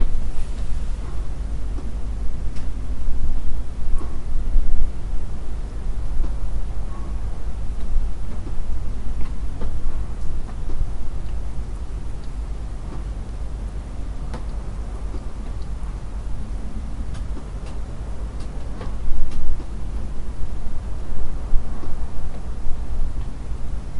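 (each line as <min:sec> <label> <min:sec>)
0:00.0 Hammering sounds in the distance. 0:05.3
0:00.0 Rain falling in the background. 0:24.0
0:07.3 Hammering noise from a distance. 0:16.3
0:17.4 Hammering noise from a distance. 0:20.9
0:21.5 Hammering noise from a distance. 0:23.8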